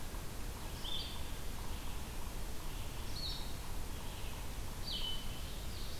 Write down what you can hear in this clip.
Yellow-bellied Sapsucker, Blue-headed Vireo, Ovenbird